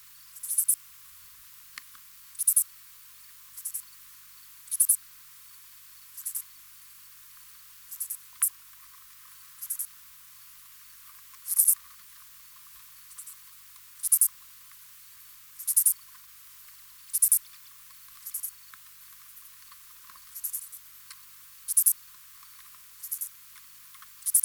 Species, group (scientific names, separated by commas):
Pholidoptera fallax, Orthoptera